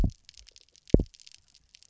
{"label": "biophony, double pulse", "recorder": "SoundTrap 300"}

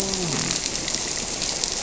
{"label": "biophony", "recorder": "SoundTrap 300"}
{"label": "biophony, grouper", "recorder": "SoundTrap 300"}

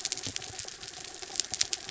{"label": "anthrophony, mechanical", "recorder": "SoundTrap 300"}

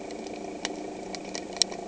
{"label": "anthrophony, boat engine", "recorder": "HydroMoth"}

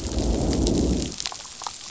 {"label": "biophony, growl", "recorder": "SoundTrap 500"}
{"label": "biophony, damselfish", "recorder": "SoundTrap 500"}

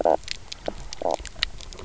{"label": "biophony, knock croak", "recorder": "SoundTrap 300"}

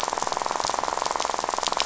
{"label": "biophony, rattle", "recorder": "SoundTrap 500"}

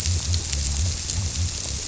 {"label": "biophony", "recorder": "SoundTrap 300"}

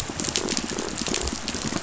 {"label": "biophony", "recorder": "SoundTrap 500"}
{"label": "biophony, pulse", "recorder": "SoundTrap 500"}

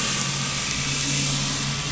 {"label": "anthrophony, boat engine", "recorder": "SoundTrap 500"}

